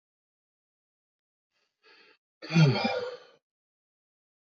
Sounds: Sigh